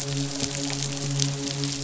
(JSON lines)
{"label": "biophony, midshipman", "recorder": "SoundTrap 500"}